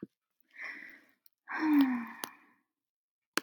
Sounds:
Sigh